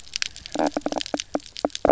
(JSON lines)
{"label": "biophony, knock croak", "recorder": "SoundTrap 300"}